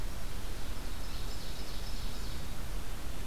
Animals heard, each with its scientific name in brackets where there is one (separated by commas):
Ovenbird (Seiurus aurocapilla)